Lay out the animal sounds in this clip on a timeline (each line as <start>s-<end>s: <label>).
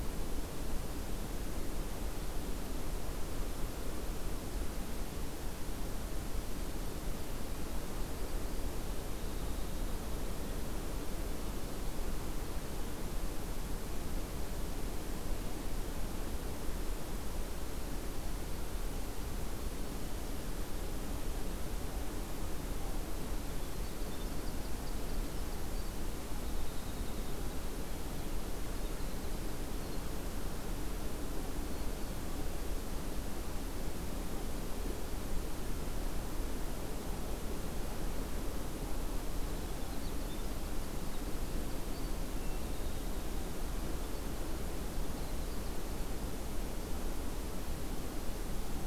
6.5s-12.2s: Winter Wren (Troglodytes hiemalis)
23.1s-32.5s: Winter Wren (Troglodytes hiemalis)
39.0s-45.9s: Winter Wren (Troglodytes hiemalis)